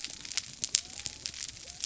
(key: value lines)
label: biophony
recorder: SoundTrap 300